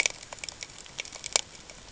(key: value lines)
label: ambient
recorder: HydroMoth